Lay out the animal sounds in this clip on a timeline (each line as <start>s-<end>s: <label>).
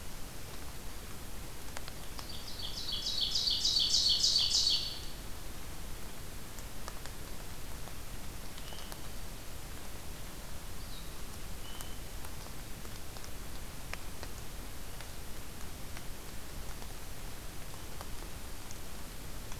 2.2s-5.1s: Ovenbird (Seiurus aurocapilla)
8.5s-9.0s: unidentified call
10.7s-11.2s: Blue-headed Vireo (Vireo solitarius)
11.5s-12.1s: unidentified call